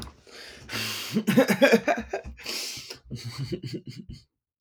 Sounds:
Laughter